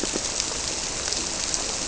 {"label": "biophony", "recorder": "SoundTrap 300"}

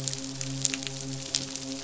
{"label": "biophony, midshipman", "recorder": "SoundTrap 500"}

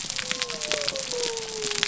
{"label": "biophony", "recorder": "SoundTrap 300"}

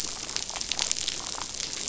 {"label": "biophony, damselfish", "recorder": "SoundTrap 500"}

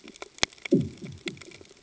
{"label": "anthrophony, bomb", "recorder": "HydroMoth"}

